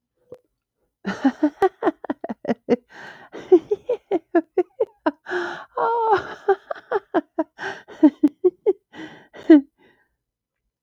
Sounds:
Laughter